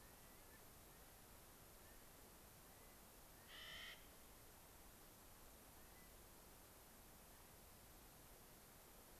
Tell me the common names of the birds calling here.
Clark's Nutcracker